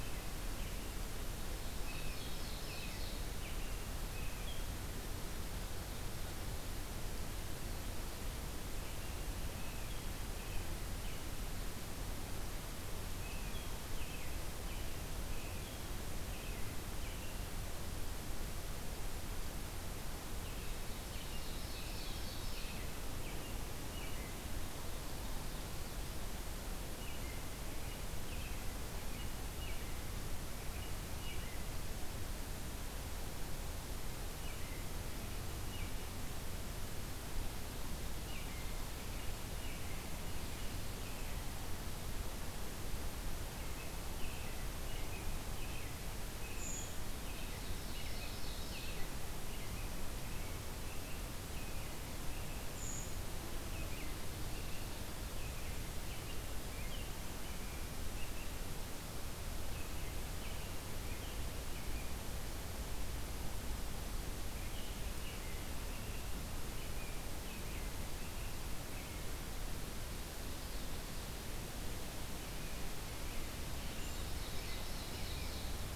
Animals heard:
Brown Creeper (Certhia americana), American Robin (Turdus migratorius), Ovenbird (Seiurus aurocapilla)

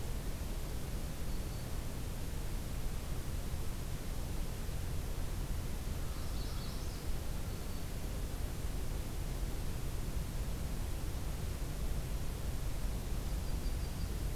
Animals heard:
Yellow-rumped Warbler (Setophaga coronata), American Crow (Corvus brachyrhynchos), Magnolia Warbler (Setophaga magnolia), Black-throated Green Warbler (Setophaga virens)

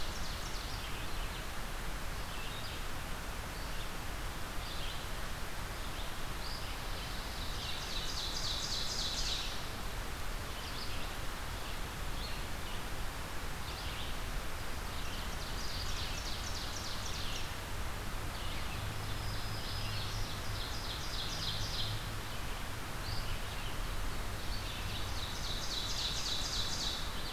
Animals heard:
Red-eyed Vireo (Vireo olivaceus), Black-throated Green Warbler (Setophaga virens), Ovenbird (Seiurus aurocapilla)

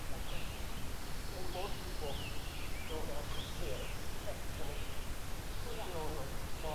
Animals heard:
Pine Warbler (Setophaga pinus), Scarlet Tanager (Piranga olivacea), Red-eyed Vireo (Vireo olivaceus)

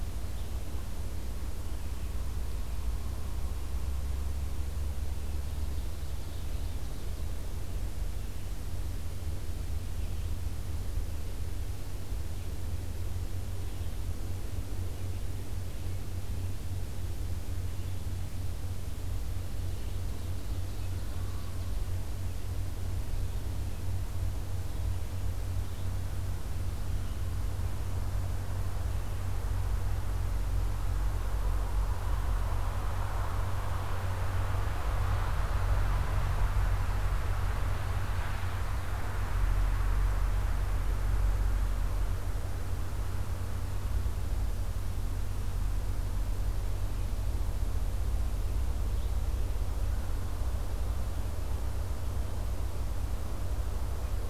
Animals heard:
Red-eyed Vireo (Vireo olivaceus), Ovenbird (Seiurus aurocapilla)

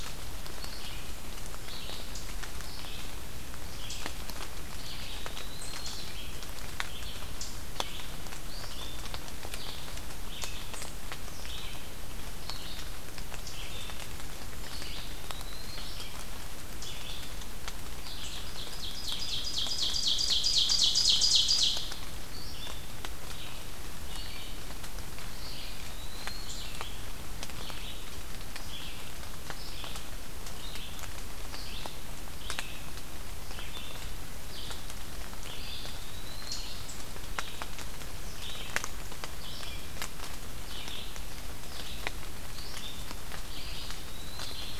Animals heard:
Red-eyed Vireo (Vireo olivaceus), Eastern Wood-Pewee (Contopus virens), Ovenbird (Seiurus aurocapilla)

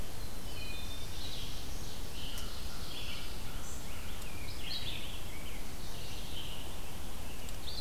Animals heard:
Red-eyed Vireo (Vireo olivaceus), Wood Thrush (Hylocichla mustelina), Black-throated Blue Warbler (Setophaga caerulescens), Rose-breasted Grosbeak (Pheucticus ludovicianus)

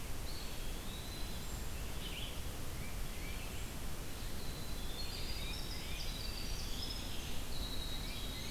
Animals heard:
Tufted Titmouse (Baeolophus bicolor), Red-eyed Vireo (Vireo olivaceus), Winter Wren (Troglodytes hiemalis), Eastern Wood-Pewee (Contopus virens)

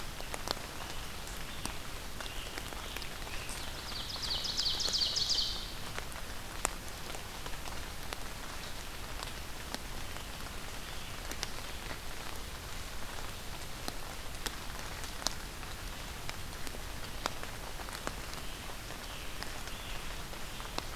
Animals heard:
American Robin (Turdus migratorius), Ovenbird (Seiurus aurocapilla)

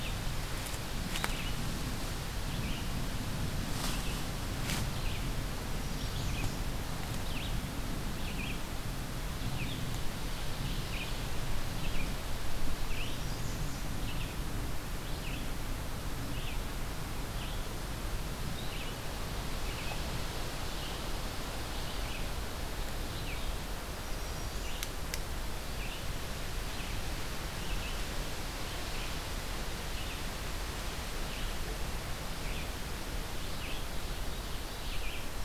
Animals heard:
Red-eyed Vireo (Vireo olivaceus), Ovenbird (Seiurus aurocapilla), American Redstart (Setophaga ruticilla)

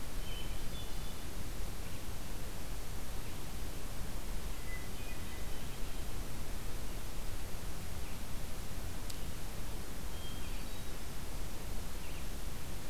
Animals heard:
Hermit Thrush (Catharus guttatus)

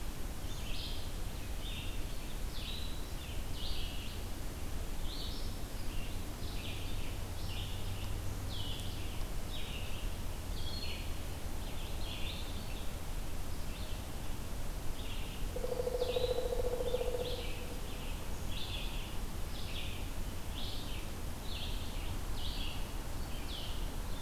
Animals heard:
Pileated Woodpecker (Dryocopus pileatus), Red-eyed Vireo (Vireo olivaceus)

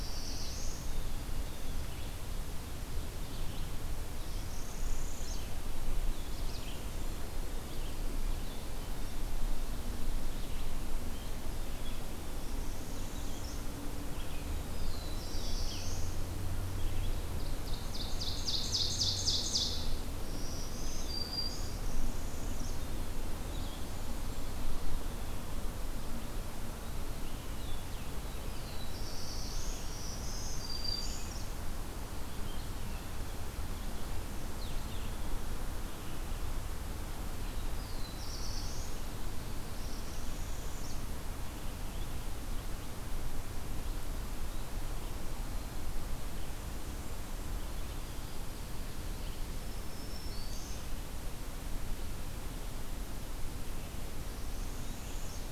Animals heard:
Black-throated Green Warbler (Setophaga virens), Northern Parula (Setophaga americana), Blackburnian Warbler (Setophaga fusca), Blue-headed Vireo (Vireo solitarius), Red-eyed Vireo (Vireo olivaceus), Ovenbird (Seiurus aurocapilla), Black-throated Blue Warbler (Setophaga caerulescens)

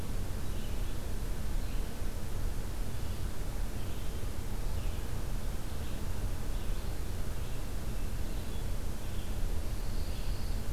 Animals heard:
Pine Warbler (Setophaga pinus), Red-eyed Vireo (Vireo olivaceus)

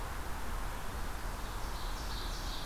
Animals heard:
Red-eyed Vireo (Vireo olivaceus), Ovenbird (Seiurus aurocapilla)

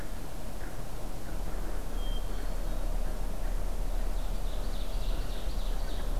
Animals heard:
Hermit Thrush (Catharus guttatus), Ovenbird (Seiurus aurocapilla)

